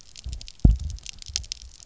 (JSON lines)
{"label": "biophony", "recorder": "SoundTrap 300"}